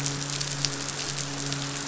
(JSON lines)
{"label": "biophony, midshipman", "recorder": "SoundTrap 500"}